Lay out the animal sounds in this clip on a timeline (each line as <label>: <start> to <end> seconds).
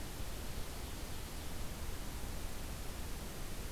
Ovenbird (Seiurus aurocapilla): 0.0 to 1.6 seconds